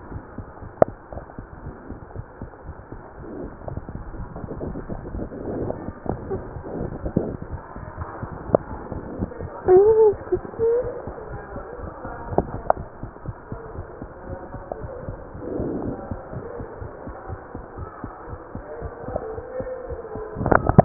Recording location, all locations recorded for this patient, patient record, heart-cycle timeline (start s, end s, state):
mitral valve (MV)
aortic valve (AV)+pulmonary valve (PV)+tricuspid valve (TV)+mitral valve (MV)
#Age: Child
#Sex: Male
#Height: 108.0 cm
#Weight: 19.0 kg
#Pregnancy status: False
#Murmur: Absent
#Murmur locations: nan
#Most audible location: nan
#Systolic murmur timing: nan
#Systolic murmur shape: nan
#Systolic murmur grading: nan
#Systolic murmur pitch: nan
#Systolic murmur quality: nan
#Diastolic murmur timing: nan
#Diastolic murmur shape: nan
#Diastolic murmur grading: nan
#Diastolic murmur pitch: nan
#Diastolic murmur quality: nan
#Outcome: Abnormal
#Campaign: 2015 screening campaign
0.00	11.30	unannotated
11.30	11.38	S1
11.38	11.53	systole
11.53	11.60	S2
11.60	11.81	diastole
11.81	11.88	S1
11.88	12.03	systole
12.03	12.09	S2
12.09	12.30	diastole
12.30	12.37	S1
12.37	12.51	systole
12.51	12.57	S2
12.57	12.77	diastole
12.77	12.84	S1
12.84	13.00	systole
13.00	13.08	S2
13.08	13.26	diastole
13.26	13.33	S1
13.33	13.50	systole
13.50	13.57	S2
13.57	13.75	diastole
13.75	13.84	S1
13.84	13.99	systole
13.99	14.07	S2
14.07	14.27	diastole
14.27	14.36	S1
14.36	14.51	systole
14.51	14.59	S2
14.59	14.80	diastole
14.80	14.89	S1
14.89	15.06	systole
15.06	15.13	S2
15.13	20.85	unannotated